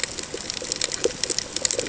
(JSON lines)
{"label": "ambient", "recorder": "HydroMoth"}